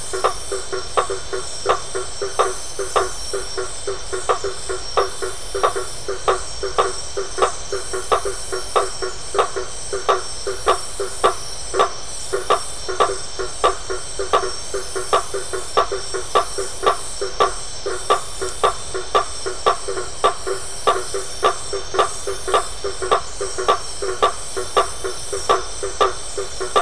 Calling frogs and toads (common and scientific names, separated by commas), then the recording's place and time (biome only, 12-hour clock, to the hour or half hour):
blacksmith tree frog (Boana faber)
Atlantic Forest, 9:30pm